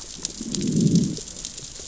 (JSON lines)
{"label": "biophony, growl", "recorder": "SoundTrap 600 or HydroMoth"}